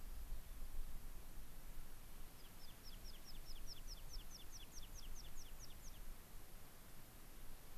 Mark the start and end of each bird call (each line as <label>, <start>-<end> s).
American Pipit (Anthus rubescens), 2.3-6.0 s